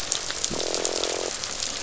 {"label": "biophony, croak", "recorder": "SoundTrap 500"}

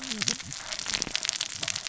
{"label": "biophony, cascading saw", "recorder": "SoundTrap 600 or HydroMoth"}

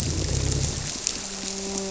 {"label": "biophony, grouper", "recorder": "SoundTrap 300"}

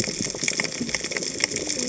{"label": "biophony, cascading saw", "recorder": "HydroMoth"}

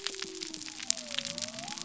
{"label": "biophony", "recorder": "SoundTrap 300"}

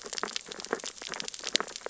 {"label": "biophony, sea urchins (Echinidae)", "recorder": "SoundTrap 600 or HydroMoth"}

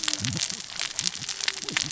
{"label": "biophony, cascading saw", "recorder": "SoundTrap 600 or HydroMoth"}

